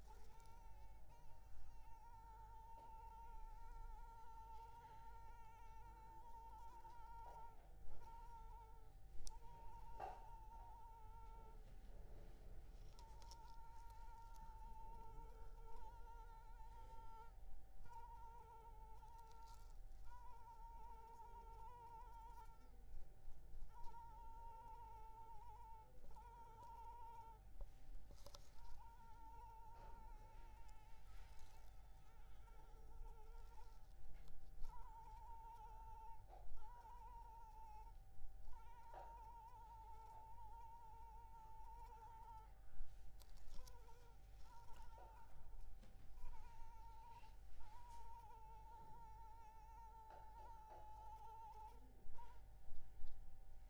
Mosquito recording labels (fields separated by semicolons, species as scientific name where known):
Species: Anopheles arabiensis; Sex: female; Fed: unfed; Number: one; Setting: cup